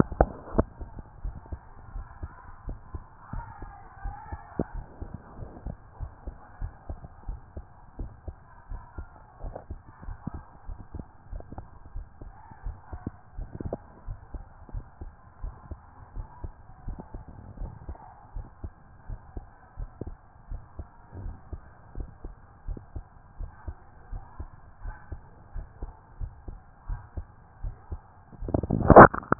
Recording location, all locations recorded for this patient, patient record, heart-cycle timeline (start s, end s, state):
pulmonary valve (PV)
aortic valve (AV)+pulmonary valve (PV)+tricuspid valve (TV)+mitral valve (MV)
#Age: Child
#Sex: Male
#Height: 153.0 cm
#Weight: 53.4 kg
#Pregnancy status: False
#Murmur: Absent
#Murmur locations: nan
#Most audible location: nan
#Systolic murmur timing: nan
#Systolic murmur shape: nan
#Systolic murmur grading: nan
#Systolic murmur pitch: nan
#Systolic murmur quality: nan
#Diastolic murmur timing: nan
#Diastolic murmur shape: nan
#Diastolic murmur grading: nan
#Diastolic murmur pitch: nan
#Diastolic murmur quality: nan
#Outcome: Abnormal
#Campaign: 2014 screening campaign
0.00	4.74	unannotated
4.74	4.86	S1
4.86	5.00	systole
5.00	5.10	S2
5.10	5.38	diastole
5.38	5.50	S1
5.50	5.66	systole
5.66	5.76	S2
5.76	6.00	diastole
6.00	6.12	S1
6.12	6.26	systole
6.26	6.34	S2
6.34	6.60	diastole
6.60	6.72	S1
6.72	6.88	systole
6.88	6.98	S2
6.98	7.28	diastole
7.28	7.40	S1
7.40	7.56	systole
7.56	7.64	S2
7.64	7.98	diastole
7.98	8.10	S1
8.10	8.26	systole
8.26	8.36	S2
8.36	8.70	diastole
8.70	8.82	S1
8.82	8.98	systole
8.98	9.06	S2
9.06	9.42	diastole
9.42	9.54	S1
9.54	9.70	systole
9.70	9.78	S2
9.78	10.06	diastole
10.06	10.18	S1
10.18	10.34	systole
10.34	10.42	S2
10.42	10.68	diastole
10.68	10.78	S1
10.78	10.94	systole
10.94	11.04	S2
11.04	11.32	diastole
11.32	11.42	S1
11.42	11.56	systole
11.56	11.66	S2
11.66	11.94	diastole
11.94	12.06	S1
12.06	12.22	systole
12.22	12.32	S2
12.32	12.64	diastole
12.64	12.76	S1
12.76	12.92	systole
12.92	13.00	S2
13.00	13.36	diastole
13.36	13.48	S1
13.48	13.64	systole
13.64	13.76	S2
13.76	14.06	diastole
14.06	14.18	S1
14.18	14.34	systole
14.34	14.44	S2
14.44	14.72	diastole
14.72	14.84	S1
14.84	15.02	systole
15.02	15.10	S2
15.10	15.42	diastole
15.42	15.54	S1
15.54	15.70	systole
15.70	15.78	S2
15.78	16.16	diastole
16.16	16.26	S1
16.26	16.42	systole
16.42	16.52	S2
16.52	16.86	diastole
16.86	16.98	S1
16.98	17.14	systole
17.14	17.24	S2
17.24	17.60	diastole
17.60	17.72	S1
17.72	17.88	systole
17.88	17.96	S2
17.96	18.34	diastole
18.34	18.46	S1
18.46	18.62	systole
18.62	18.72	S2
18.72	19.08	diastole
19.08	19.20	S1
19.20	19.36	systole
19.36	19.44	S2
19.44	19.78	diastole
19.78	19.90	S1
19.90	20.04	systole
20.04	20.16	S2
20.16	20.50	diastole
20.50	20.62	S1
20.62	20.78	systole
20.78	20.86	S2
20.86	21.20	diastole
21.20	21.34	S1
21.34	21.52	systole
21.52	21.60	S2
21.60	21.96	diastole
21.96	22.08	S1
22.08	22.24	systole
22.24	22.34	S2
22.34	22.66	diastole
22.66	22.80	S1
22.80	22.94	systole
22.94	23.04	S2
23.04	23.38	diastole
23.38	23.50	S1
23.50	23.66	systole
23.66	23.76	S2
23.76	24.12	diastole
24.12	24.22	S1
24.22	24.38	systole
24.38	24.48	S2
24.48	24.84	diastole
24.84	24.96	S1
24.96	25.10	systole
25.10	25.20	S2
25.20	25.54	diastole
25.54	25.66	S1
25.66	25.82	systole
25.82	25.92	S2
25.92	26.20	diastole
26.20	26.32	S1
26.32	26.48	systole
26.48	26.58	S2
26.58	26.88	diastole
26.88	27.00	S1
27.00	27.16	systole
27.16	27.26	S2
27.26	27.62	diastole
27.62	27.74	S1
27.74	27.90	systole
27.90	28.00	S2
28.00	28.42	diastole
28.42	29.39	unannotated